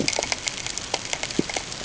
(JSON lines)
{"label": "ambient", "recorder": "HydroMoth"}